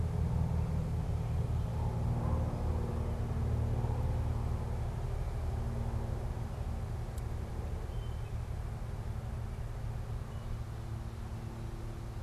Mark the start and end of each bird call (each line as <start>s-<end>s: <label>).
7.6s-10.8s: unidentified bird